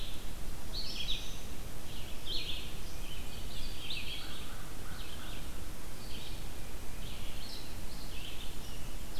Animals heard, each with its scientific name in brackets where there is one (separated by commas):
Red-eyed Vireo (Vireo olivaceus), American Crow (Corvus brachyrhynchos)